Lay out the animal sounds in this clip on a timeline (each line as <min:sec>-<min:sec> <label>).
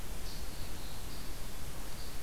0:00.0-0:01.3 Black-throated Blue Warbler (Setophaga caerulescens)